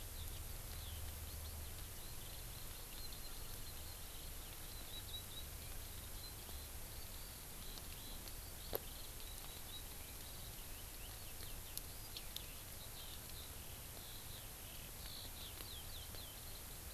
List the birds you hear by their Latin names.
Alauda arvensis